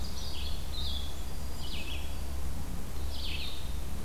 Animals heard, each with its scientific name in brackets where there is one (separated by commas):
Black-throated Green Warbler (Setophaga virens), Blue-headed Vireo (Vireo solitarius)